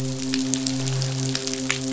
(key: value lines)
label: biophony, midshipman
recorder: SoundTrap 500